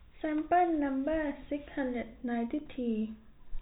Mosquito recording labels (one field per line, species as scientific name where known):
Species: no mosquito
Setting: cup